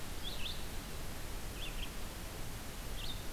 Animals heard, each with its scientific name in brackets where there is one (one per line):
Red-eyed Vireo (Vireo olivaceus)